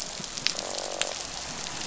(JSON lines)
{"label": "biophony, croak", "recorder": "SoundTrap 500"}